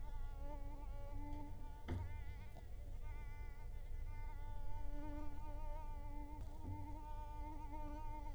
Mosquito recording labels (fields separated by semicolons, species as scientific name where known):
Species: Culex quinquefasciatus; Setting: cup